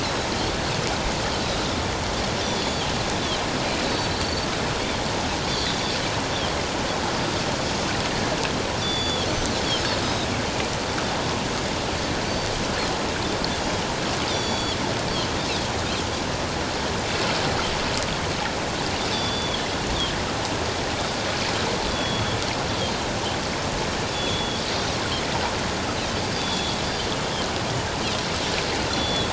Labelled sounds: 2.4	2.9	Pacific white-sided dolphin, 3.0 to 7.0 kHz
3.8	4.5	Pacific white-sided dolphin, 3.8 to 4.6 kHz
5.6	5.9	Pacific white-sided dolphin, 3.4 to 3.7 kHz
8.8	9.6	Pacific white-sided dolphin, 3.1 to 7.0 kHz
10.0	10.3	Pacific white-sided dolphin, 3.6 to 3.9 kHz
14.3	14.8	Pacific white-sided dolphin, 3.2 to 6.9 kHz
19.1	19.6	Pacific white-sided dolphin, 3.1 to 4.8 kHz
21.9	22.4	Pacific white-sided dolphin, 3.2 to 3.5 kHz
24.1	24.6	Pacific white-sided dolphin, 3.2 to 3.6 kHz
26.3	26.8	Pacific white-sided dolphin, 3.2 to 3.7 kHz
28.9	29.3	Pacific white-sided dolphin, 3.3 to 5.9 kHz

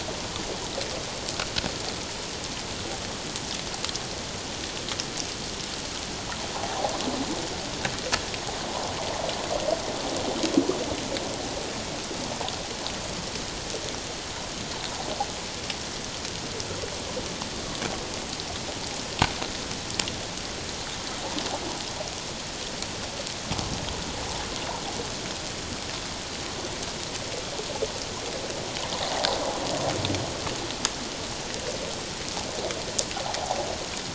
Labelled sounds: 6.5	6.9	water noise, 0.78 to 1.1 kHz

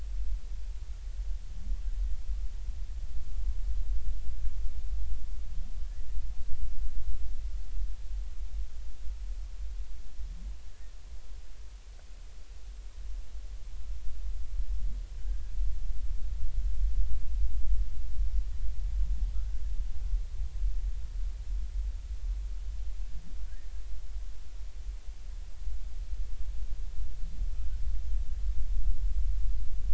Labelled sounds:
15.2	15.5	humpback whale, 1.5 to 1.7 kHz

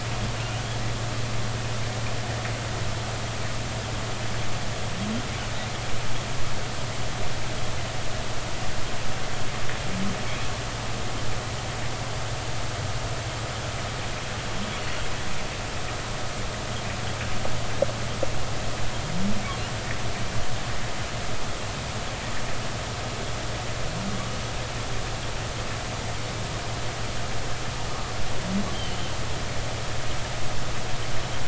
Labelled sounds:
28.7	29.0	humpback whale, 2.9 to 3.2 kHz

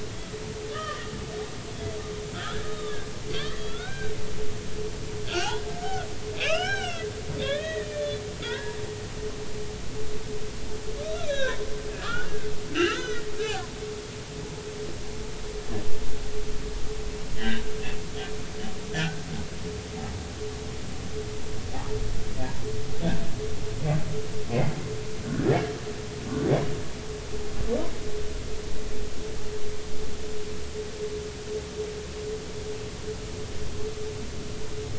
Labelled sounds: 0.7	1.1	humpback whale, 1.1 to 3.3 kHz
2.3	3.0	humpback whale, 1.2 to 3.8 kHz
3.6	4.1	humpback whale, 1.3 to 3.9 kHz
5.3	7.1	humpback whale, 1.1 to 5.6 kHz
7.4	8.8	humpback whale, 0.83 to 4.1 kHz
11.3	11.6	humpback whale, 1.4 to 4.0 kHz
12.0	12.3	humpback whale, 1.1 to 1.9 kHz
12.7	13.6	humpback whale, 1.2 to 4.1 kHz
17.4	17.6	humpback whale, 1.5 to 3.2 kHz
18.9	19.2	humpback whale, 1.4 to 1.9 kHz

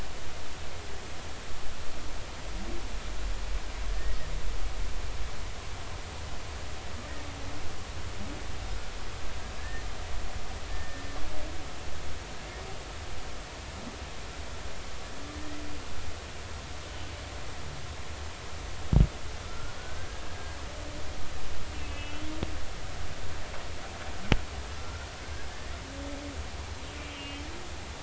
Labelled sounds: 9.6	9.8	humpback whale, 1.7 to 1.9 kHz
10.7	11.0	humpback whale, 1.7 to 1.9 kHz
15.3	15.6	humpback whale, 1.8 to 2.0 kHz
19.4	20.1	humpback whale, 1.1 to 1.6 kHz
21.7	22.3	humpback whale, 2.5 to 3.1 kHz
24.8	25.8	humpback whale, 1.3 to 2.0 kHz
27.1	27.5	humpback whale, 2.5 to 2.9 kHz

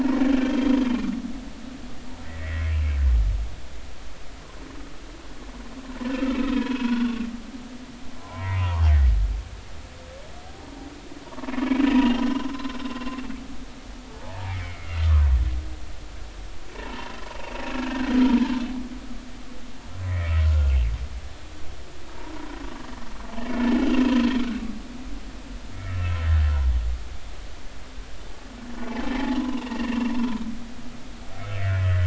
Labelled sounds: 0.5	0.8	humpback whale, 3.1 to 3.3 kHz
2.2	2.6	humpback whale, 1.7 to 2.0 kHz
6.7	7.2	humpback whale, 1.3 to 3.6 kHz
8.2	8.8	humpback whale, 0.80 to 2.3 kHz
12.5	12.8	humpback whale, 0.99 to 1.1 kHz
14.2	14.9	humpback whale, 0.80 to 2.4 kHz
16.7	17.5	humpback whale, 0.86 to 2.8 kHz
20.1	20.8	humpback whale, 1.3 to 2.4 kHz
22.3	22.6	humpback whale, 0.93 to 1.1 kHz
25.7	26.3	humpback whale, 1.2 to 2.4 kHz
29.1	30.1	humpback whale, 0.80 to 3.0 kHz
31.5	32.0	humpback whale, 1.4 to 2.0 kHz

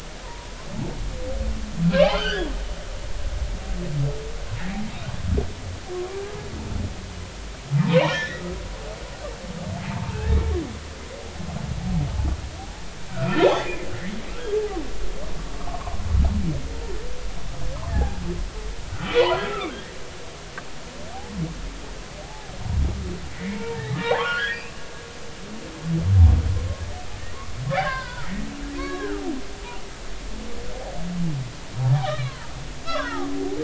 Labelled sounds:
2.0	2.5	humpback whale, 1.2 to 4.9 kHz
5.9	6.2	humpback whale, 1.0 to 1.2 kHz
7.8	8.4	humpback whale, 0.80 to 2.5 kHz
9.9	10.4	humpback whale, 0.86 to 1.9 kHz
13.1	13.9	humpback whale, 1.3 to 3.6 kHz
14.3	14.6	humpback whale, 1.2 to 1.7 kHz
15.5	16.0	humpback whale, 0.93 to 1.3 kHz
17.9	19.9	humpback whale, 0.80 to 2.5 kHz
22.2	22.5	humpback whale, 0.80 to 0.93 kHz
23.4	24.8	humpback whale, 0.80 to 3.5 kHz
27.8	29.2	humpback whale, 0.90 to 3.9 kHz
32.0	33.3	humpback whale, 0.90 to 3.8 kHz

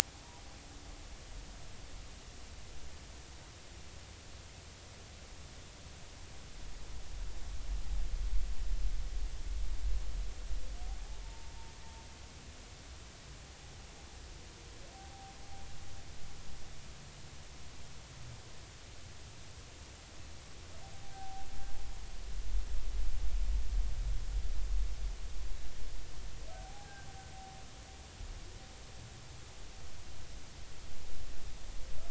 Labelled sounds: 11.2	11.5	humpback whale, 0.86 to 0.96 kHz
20.9	21.5	humpback whale, 0.80 to 0.83 kHz
26.5	27.1	humpback whale, 0.80 to 1.7 kHz

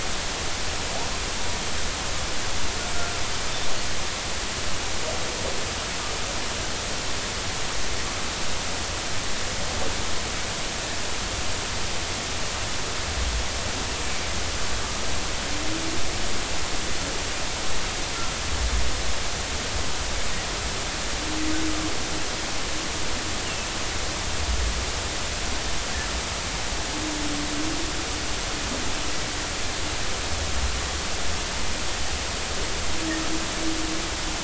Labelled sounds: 2.9	3.2	humpback whale, 1.3 to 1.6 kHz

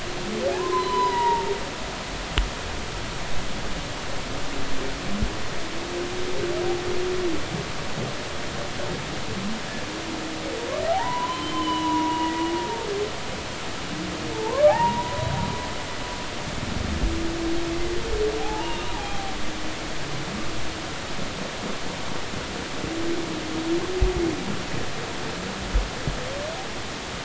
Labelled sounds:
0.5	1.5	humpback whale, 0.80 to 4.1 kHz
10.9	12.4	humpback whale, 0.80 to 3.2 kHz
14.3	15.2	humpback whale, 0.80 to 2.0 kHz
18.4	19.3	humpback whale, 0.80 to 2.9 kHz

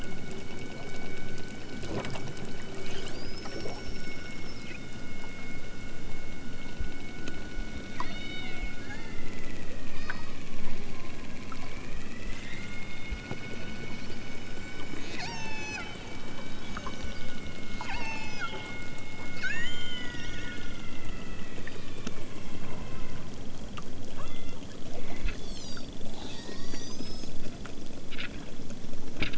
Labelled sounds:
7.9	9.2	killer whale, southern Alaska resident, 0.55 to 5.2 kHz
9.9	10.5	killer whale, southern Alaska resident, 3.3 to 5.3 kHz
15.1	15.9	killer whale, southern Alaska resident, 0.41 to 8.0 kHz
17.8	18.5	killer whale, southern Alaska resident, 0.51 to 7.5 kHz
19.3	20.4	killer whale, southern Alaska resident, 1.1 to 7.3 kHz
24.1	24.7	killer whale, southern Alaska resident, 0.78 to 3.7 kHz
25.3	27.4	killer whale, southern Alaska resident, 0.46 to 8.0 kHz

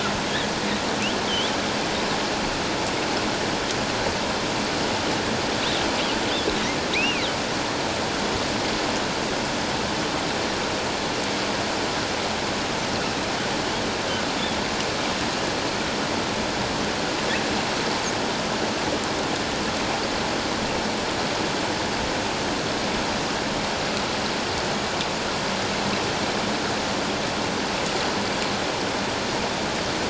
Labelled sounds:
6.9	7.3	humpback whale, 1.9 to 2.9 kHz

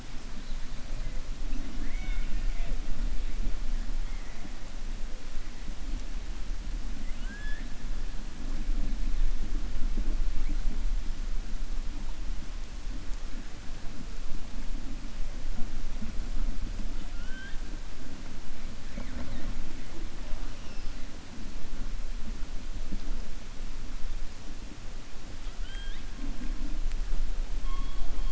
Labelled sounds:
7.0	7.7	killer whale, 1.5 to 3.5 kHz

